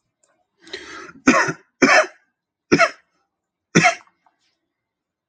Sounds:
Cough